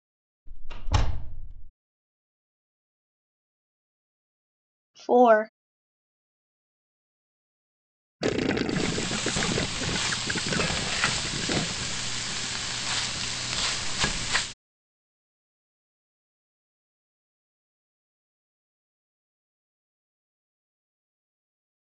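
At 0.46 seconds, a door slams. Then, at 5.08 seconds, a voice says "Four." Later, at 8.19 seconds, water gurgles. Over it, at 8.7 seconds, frying is heard.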